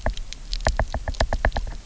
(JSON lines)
{"label": "biophony, knock", "recorder": "SoundTrap 300"}